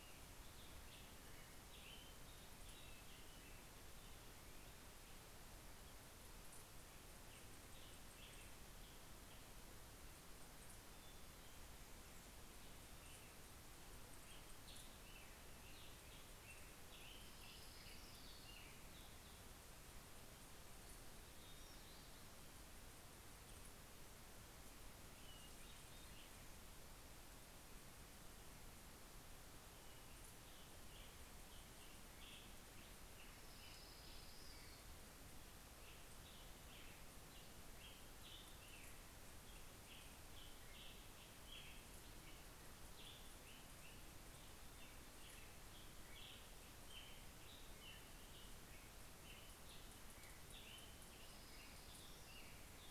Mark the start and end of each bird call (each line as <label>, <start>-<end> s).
Black-headed Grosbeak (Pheucticus melanocephalus), 0.0-4.5 s
Black-headed Grosbeak (Pheucticus melanocephalus), 6.2-9.6 s
Black-headed Grosbeak (Pheucticus melanocephalus), 12.7-19.6 s
Orange-crowned Warbler (Leiothlypis celata), 16.7-19.2 s
Hermit Thrush (Catharus guttatus), 24.6-27.4 s
Black-headed Grosbeak (Pheucticus melanocephalus), 29.9-52.9 s
Orange-crowned Warbler (Leiothlypis celata), 32.8-35.0 s
Orange-crowned Warbler (Leiothlypis celata), 50.5-52.9 s